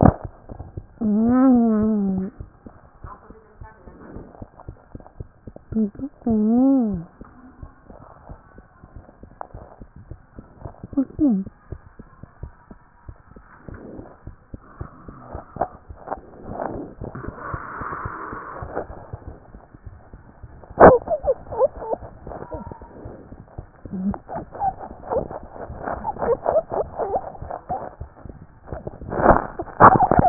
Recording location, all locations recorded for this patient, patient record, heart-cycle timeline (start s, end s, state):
mitral valve (MV)
pulmonary valve (PV)+tricuspid valve (TV)+mitral valve (MV)
#Age: Child
#Sex: Male
#Height: 123.0 cm
#Weight: 23.1 kg
#Pregnancy status: False
#Murmur: Absent
#Murmur locations: nan
#Most audible location: nan
#Systolic murmur timing: nan
#Systolic murmur shape: nan
#Systolic murmur grading: nan
#Systolic murmur pitch: nan
#Systolic murmur quality: nan
#Diastolic murmur timing: nan
#Diastolic murmur shape: nan
#Diastolic murmur grading: nan
#Diastolic murmur pitch: nan
#Diastolic murmur quality: nan
#Outcome: Normal
#Campaign: 2014 screening campaign
0.00	3.04	unannotated
3.04	3.14	S1
3.14	3.30	systole
3.30	3.38	S2
3.38	3.60	diastole
3.60	3.70	S1
3.70	3.86	systole
3.86	3.94	S2
3.94	4.14	diastole
4.14	4.24	S1
4.24	4.40	systole
4.40	4.48	S2
4.48	4.68	diastole
4.68	4.76	S1
4.76	4.92	systole
4.92	5.02	S2
5.02	5.20	diastole
5.20	5.28	S1
5.28	5.44	systole
5.44	5.54	S2
5.54	5.72	diastole
5.72	30.29	unannotated